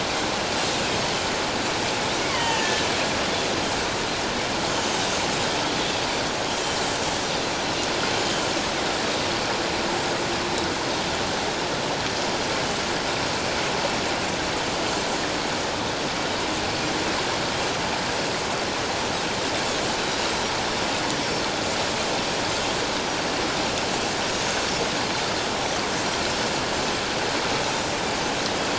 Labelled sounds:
2.2	2.9	Pacific white-sided dolphin, 0.84 to 6.7 kHz
4.7	5.0	Pacific white-sided dolphin, 5.8 to 6.7 kHz
6.6	6.9	Pacific white-sided dolphin, 7.0 to 7.5 kHz
12.6	12.9	Pacific white-sided dolphin, 2.9 to 3.0 kHz

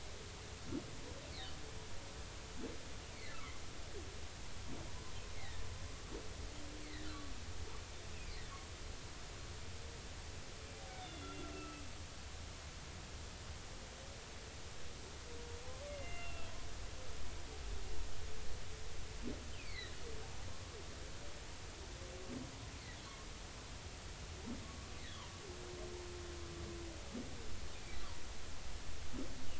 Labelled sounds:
3.1	3.6	humpback whale, 1.0 to 2.4 kHz
5.4	5.7	humpback whale, 1.7 to 2.3 kHz
6.8	7.1	humpback whale, 1.7 to 2.2 kHz
8.1	8.4	humpback whale, 2.0 to 2.7 kHz
10.9	11.8	humpback whale, 1.2 to 3.8 kHz
15.9	16.5	humpback whale, 1.3 to 2.8 kHz
19.5	19.9	humpback whale, 1.8 to 4.6 kHz
23.0	23.3	humpback whale, 1.0 to 1.2 kHz
24.6	24.9	humpback whale, 1.1 to 1.2 kHz

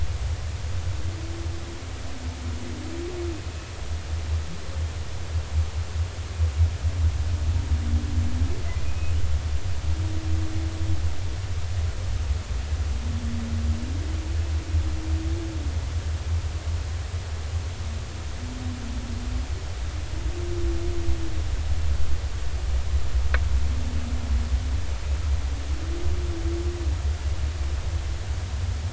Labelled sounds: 8.8	9.1	humpback whale, 2.4 to 2.6 kHz

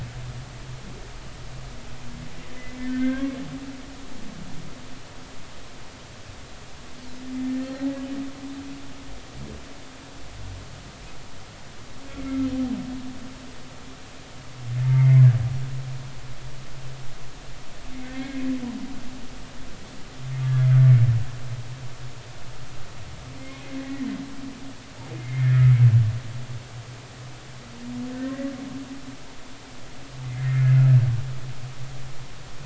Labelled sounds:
3.9	4.3	humpback whale, 1.5 to 1.7 kHz
7.4	8.0	humpback whale, 1.8 to 4.4 kHz
12.2	12.5	humpback whale, 1.3 to 1.4 kHz
14.8	15.2	humpback whale, 0.86 to 2.4 kHz
18.1	18.5	humpback whale, 1.8 to 2.2 kHz
23.8	24.1	humpback whale, 1.8 to 2.0 kHz
25.2	25.7	humpback whale, 1.6 to 2.3 kHz
28.1	28.5	humpback whale, 1.7 to 2.0 kHz
30.2	30.8	humpback whale, 1.9 to 2.2 kHz

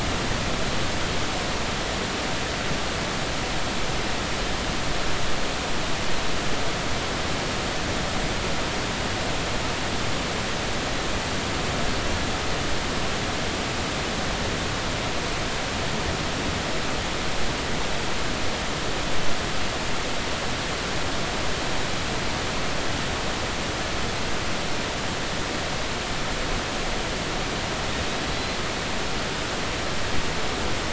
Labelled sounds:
28.3	28.6	killer whale, Bigg's (transient), 3.9 to 4.2 kHz

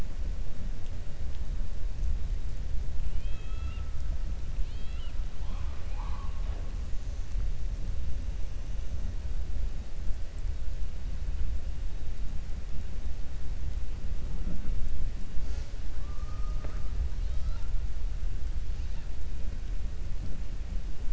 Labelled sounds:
3.1	3.9	killer whale, 1.3 to 4.0 kHz
4.6	5.2	killer whale, 1.4 to 4.7 kHz
17.1	17.7	killer whale, 0.85 to 5.8 kHz

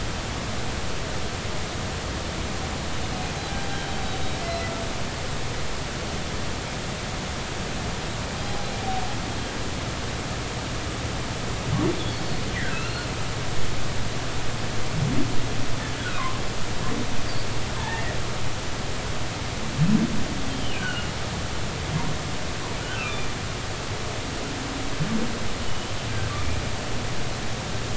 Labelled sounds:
8.4	8.7	humpback whale, 0.80 to 0.86 kHz
12.5	13.1	humpback whale, 1.3 to 4.4 kHz
16.0	16.4	humpback whale, 0.99 to 1.6 kHz
17.8	18.0	humpback whale, 0.80 to 0.96 kHz
20.5	21.1	humpback whale, 1.3 to 3.2 kHz
22.9	23.3	humpback whale, 1.2 to 2.8 kHz
25.7	25.9	humpback whale, 2.9 to 3.1 kHz
26.4	26.6	humpback whale, 2.0 to 2.4 kHz

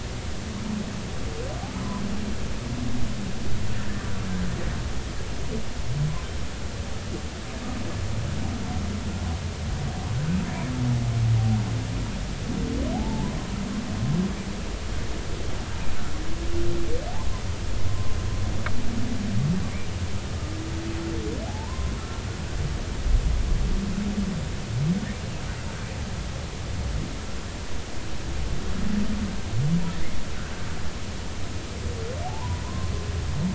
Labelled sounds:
12.9	13.4	humpback whale, 0.80 to 1.0 kHz
17.9	18.1	humpback whale, 0.99 to 1.1 kHz
21.5	21.9	humpback whale, 0.80 to 1.1 kHz
32.2	32.9	humpback whale, 0.80 to 1.1 kHz

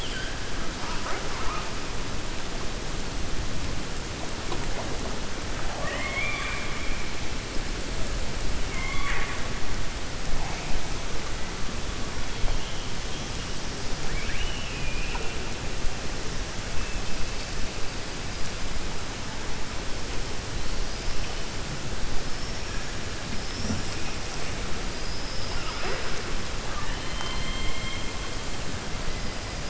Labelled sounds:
5.6	6.9	killer whale, 0.56 to 3.6 kHz
8.6	9.4	killer whale, 0.84 to 3.4 kHz
14.0	15.3	killer whale, 0.51 to 3.0 kHz
26.6	28.1	killer whale, 0.86 to 4.5 kHz

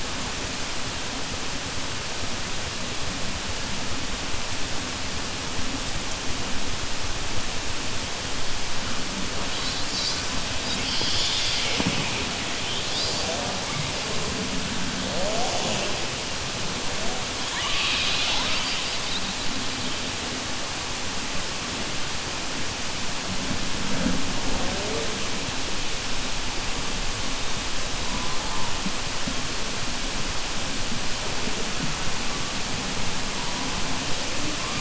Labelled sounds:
17.4	19.3	killer whale, southern resident, 0.94 to 5.6 kHz

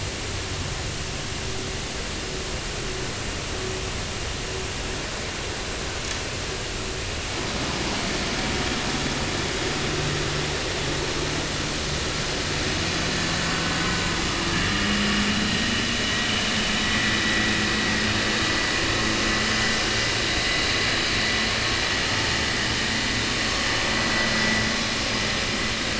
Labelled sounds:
16.8	17.2	vessel noise, 1.9 to 2.0 kHz

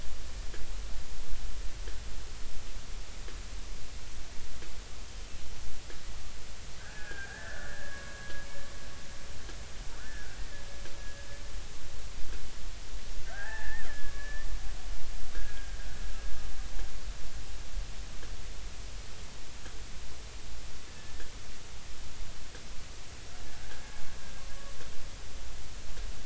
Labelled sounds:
6.8	8.0	killer whale, Bigg's (transient), 1.4 to 1.9 kHz
10.0	10.6	killer whale, Bigg's (transient), 1.4 to 1.9 kHz
13.2	14.5	killer whale, Bigg's (transient), 0.80 to 2.4 kHz
15.3	15.8	killer whale, Bigg's (transient), 1.5 to 1.7 kHz
23.5	23.8	killer whale, Bigg's (transient), 1.5 to 1.8 kHz

